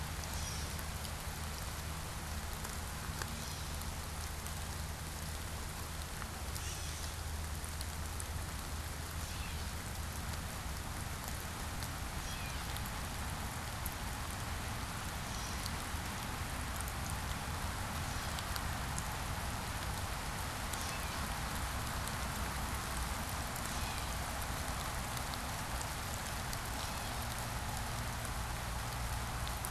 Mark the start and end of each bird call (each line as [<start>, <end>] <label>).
[0.00, 1.00] Gray Catbird (Dumetella carolinensis)
[3.00, 4.00] Gray Catbird (Dumetella carolinensis)
[6.30, 7.30] Gray Catbird (Dumetella carolinensis)
[9.00, 10.00] Gray Catbird (Dumetella carolinensis)
[11.90, 12.90] Gray Catbird (Dumetella carolinensis)
[15.00, 16.00] Gray Catbird (Dumetella carolinensis)
[17.80, 18.80] Gray Catbird (Dumetella carolinensis)
[20.60, 21.50] Gray Catbird (Dumetella carolinensis)
[23.40, 24.40] Gray Catbird (Dumetella carolinensis)
[26.60, 27.60] Gray Catbird (Dumetella carolinensis)